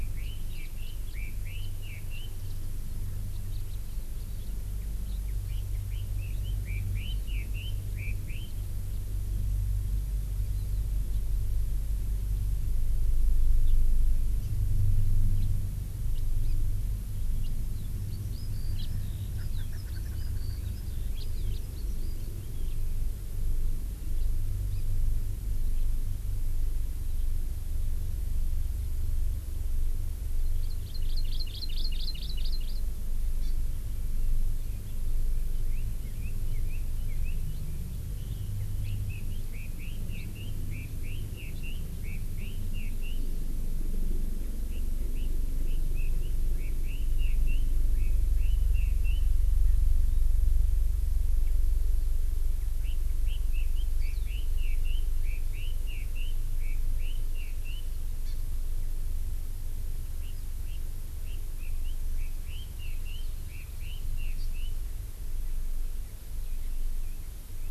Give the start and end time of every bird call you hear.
[0.00, 2.31] Red-billed Leiothrix (Leiothrix lutea)
[0.81, 1.21] House Finch (Haemorhous mexicanus)
[1.61, 1.71] House Finch (Haemorhous mexicanus)
[3.51, 3.81] House Finch (Haemorhous mexicanus)
[5.41, 8.51] Red-billed Leiothrix (Leiothrix lutea)
[14.41, 14.51] Hawaii Amakihi (Chlorodrepanis virens)
[17.91, 22.81] Eurasian Skylark (Alauda arvensis)
[18.71, 18.91] House Finch (Haemorhous mexicanus)
[19.31, 21.01] Erckel's Francolin (Pternistis erckelii)
[21.11, 21.21] House Finch (Haemorhous mexicanus)
[21.51, 21.61] House Finch (Haemorhous mexicanus)
[30.51, 32.81] Hawaii Amakihi (Chlorodrepanis virens)
[33.41, 33.51] Hawaii Amakihi (Chlorodrepanis virens)
[35.71, 37.41] Red-billed Leiothrix (Leiothrix lutea)
[38.81, 43.21] Red-billed Leiothrix (Leiothrix lutea)
[44.71, 49.31] Red-billed Leiothrix (Leiothrix lutea)
[52.81, 57.81] Red-billed Leiothrix (Leiothrix lutea)
[58.21, 58.31] Hawaii Amakihi (Chlorodrepanis virens)
[60.21, 64.71] Red-billed Leiothrix (Leiothrix lutea)
[64.41, 64.51] Hawaii Amakihi (Chlorodrepanis virens)

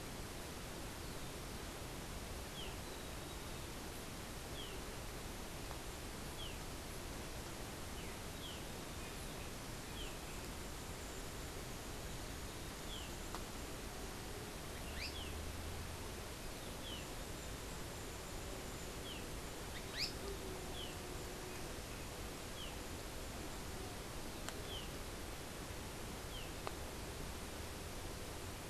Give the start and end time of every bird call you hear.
[14.70, 15.30] Azara's Spinetail (Synallaxis azarae)
[19.90, 20.10] Azara's Spinetail (Synallaxis azarae)

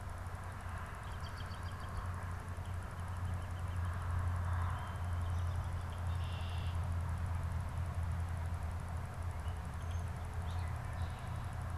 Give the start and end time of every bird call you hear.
[0.90, 2.20] American Robin (Turdus migratorius)
[2.60, 4.90] Northern Flicker (Colaptes auratus)
[5.80, 7.00] Red-winged Blackbird (Agelaius phoeniceus)

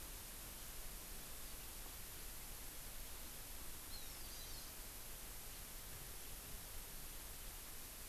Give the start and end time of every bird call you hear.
[3.90, 4.61] Hawaii Amakihi (Chlorodrepanis virens)

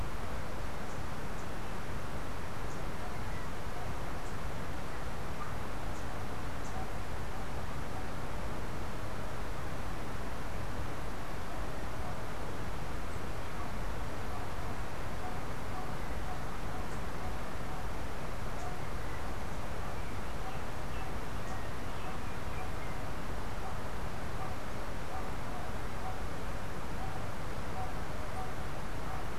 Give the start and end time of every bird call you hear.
[2.47, 6.97] unidentified bird
[18.57, 23.17] Yellow-backed Oriole (Icterus chrysater)

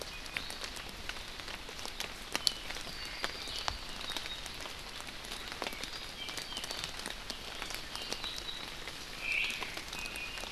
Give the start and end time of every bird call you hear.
[2.90, 3.90] Apapane (Himatione sanguinea)
[9.20, 9.60] Omao (Myadestes obscurus)
[9.90, 10.50] Iiwi (Drepanis coccinea)

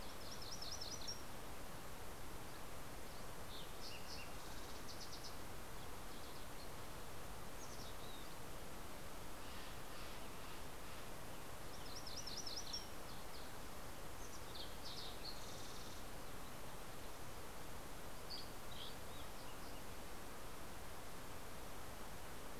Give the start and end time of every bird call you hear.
[0.00, 1.60] MacGillivray's Warbler (Geothlypis tolmiei)
[2.70, 7.40] Fox Sparrow (Passerella iliaca)
[7.40, 8.50] Mountain Chickadee (Poecile gambeli)
[9.10, 11.00] Steller's Jay (Cyanocitta stelleri)
[11.60, 12.90] MacGillivray's Warbler (Geothlypis tolmiei)
[11.60, 16.40] Fox Sparrow (Passerella iliaca)
[17.80, 19.00] Dusky Flycatcher (Empidonax oberholseri)

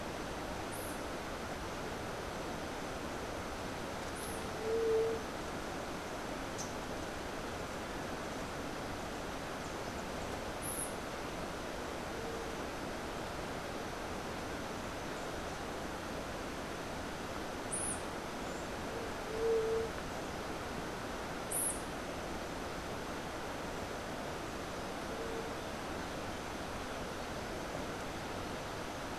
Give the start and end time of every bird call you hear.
[4.55, 5.35] White-tipped Dove (Leptotila verreauxi)
[6.45, 6.85] Rufous-capped Warbler (Basileuterus rufifrons)
[17.55, 21.95] White-eared Ground-Sparrow (Melozone leucotis)
[19.25, 19.95] White-tipped Dove (Leptotila verreauxi)

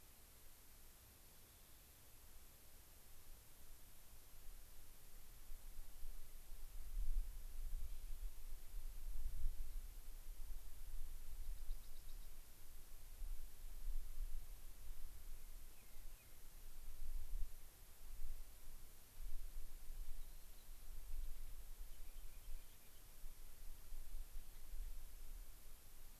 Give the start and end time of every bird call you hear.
[11.55, 12.35] Rock Wren (Salpinctes obsoletus)
[15.15, 16.45] Rock Wren (Salpinctes obsoletus)
[20.05, 20.85] Rock Wren (Salpinctes obsoletus)
[21.75, 23.05] Rock Wren (Salpinctes obsoletus)

